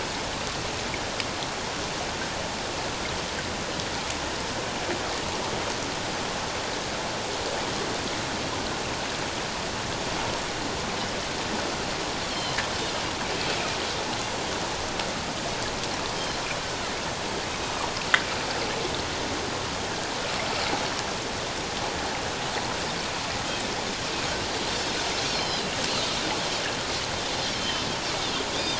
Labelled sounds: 12.3	12.6	Pacific white-sided dolphin, 3.0 to 4.4 kHz
25.2	25.7	Pacific white-sided dolphin, 2.8 to 5.7 kHz
27.6	28.7	Pacific white-sided dolphin, 3.0 to 3.8 kHz

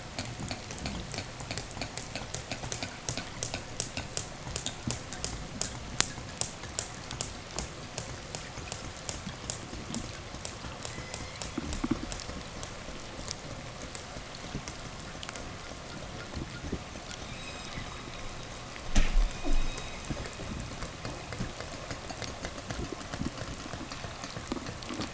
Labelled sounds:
10.7	11.5	killer whale, southern resident, 1.3 to 6.7 kHz
16.9	18.7	killer whale, southern resident, 0 to 8.0 kHz
19.0	20.9	killer whale, southern resident, 0 to 8.0 kHz

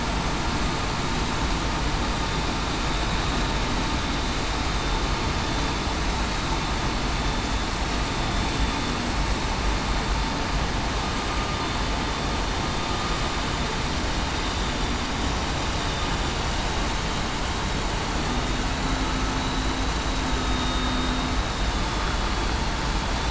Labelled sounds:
19.4	19.7	vessel noise, 3.89 to 3.94 kHz
20.4	21.1	vessel noise, 3.7 to 3.8 kHz

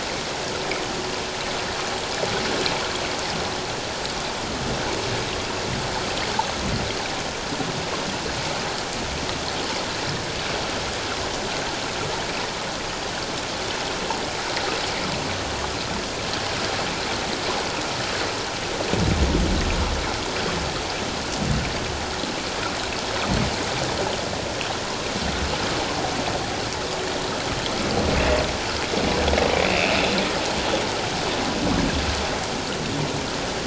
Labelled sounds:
29.7	29.9	humpback whale, 2.2 to 2.8 kHz

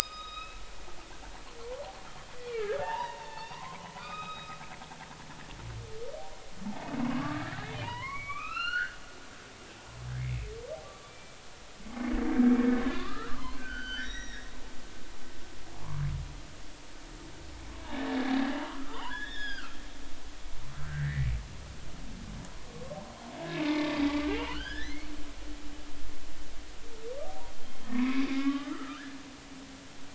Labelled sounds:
1.0	4.5	humpback whale, 0.80 to 5.2 kHz
5.0	5.5	humpback whale, 1.2 to 2.6 kHz
7.0	9.0	humpback whale, 0.86 to 4.5 kHz
10.2	10.4	humpback whale, 2.0 to 2.4 kHz
10.8	12.2	humpback whale, 1.1 to 2.4 kHz
12.9	14.5	humpback whale, 0.90 to 5.9 kHz
15.7	16.0	humpback whale, 0.80 to 1.3 kHz
17.9	19.8	humpback whale, 0.86 to 5.1 kHz
20.8	21.3	humpback whale, 1.2 to 2.4 kHz
22.7	25.1	humpback whale, 0.83 to 5.3 kHz
27.6	29.1	humpback whale, 0.96 to 4.8 kHz

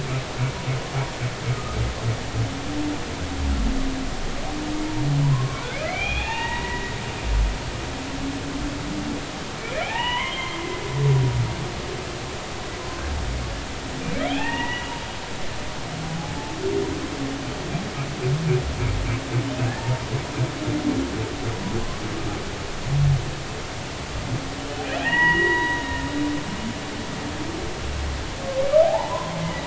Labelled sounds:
1.5	1.8	humpback whale, 1.1 to 1.3 kHz
5.3	7.0	humpback whale, 0.80 to 3.9 kHz
9.6	10.8	humpback whale, 0.80 to 3.2 kHz
14.2	15.0	humpback whale, 0.80 to 3.5 kHz
19.8	20.1	humpback whale, 0.83 to 0.99 kHz
25.0	26.1	humpback whale, 0.80 to 3.9 kHz
28.8	29.3	humpback whale, 0.80 to 1.1 kHz

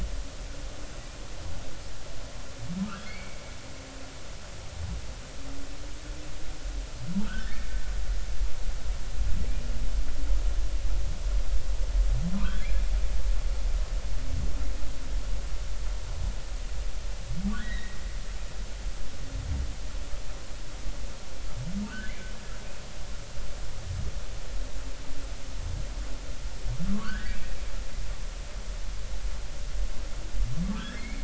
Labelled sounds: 2.8	3.4	humpback whale, 1.2 to 2.4 kHz
7.2	7.7	humpback whale, 1.2 to 1.9 kHz
12.3	12.9	humpback whale, 0.90 to 2.5 kHz
17.6	18.0	humpback whale, 1.6 to 4.0 kHz
21.9	22.1	humpback whale, 1.4 to 1.8 kHz
26.9	27.4	humpback whale, 1.0 to 2.0 kHz
30.6	31.2	humpback whale, 1.1 to 2.5 kHz

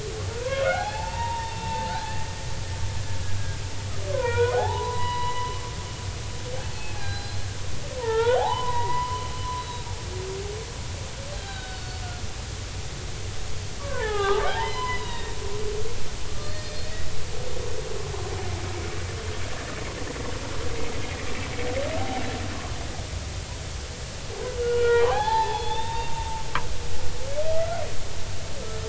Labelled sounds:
0.3	2.3	humpback whale, 0.80 to 4.4 kHz
2.6	2.9	humpback whale, 1.7 to 1.8 kHz
4.1	5.6	humpback whale, 0.80 to 4.9 kHz
6.6	7.5	humpback whale, 0.80 to 4.4 kHz
8.0	9.9	humpback whale, 0.80 to 4.0 kHz
11.4	12.0	humpback whale, 1.4 to 4.6 kHz
13.8	15.4	humpback whale, 0.80 to 5.1 kHz
16.3	16.7	humpback whale, 1.7 to 4.4 kHz
24.6	26.1	humpback whale, 0.80 to 3.7 kHz
27.5	27.8	humpback whale, 1.2 to 1.5 kHz

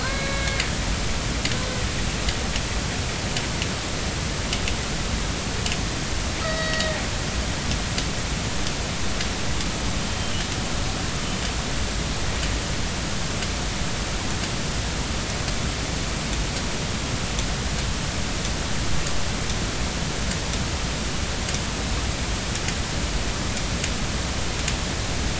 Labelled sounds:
0.0	0.7	killer whale, northern resident, A clan, AB subclan, B01 pod, call N18, 1.4 to 4.3 kHz
6.4	7.0	killer whale, northern resident, A clan, AB subclan, B01 pod, call N18, 1.2 to 4.7 kHz

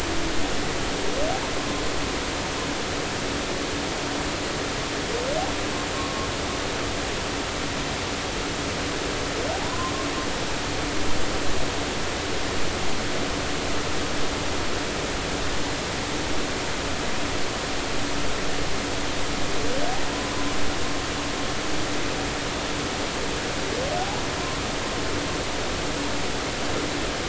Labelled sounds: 5.9	6.3	humpback whale, 1.0 to 1.1 kHz
9.5	9.9	humpback whale, 0.80 to 1.1 kHz

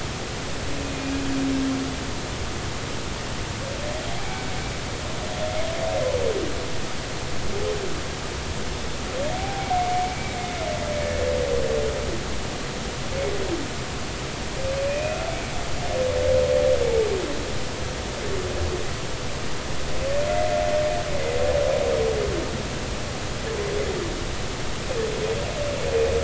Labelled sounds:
4.1	4.5	humpback whale, 0.80 to 2.4 kHz
9.3	9.8	humpback whale, 0.80 to 0.83 kHz
14.9	15.2	humpback whale, 2.4 to 2.6 kHz

